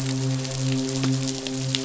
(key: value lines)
label: biophony, midshipman
recorder: SoundTrap 500